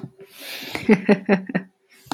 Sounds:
Laughter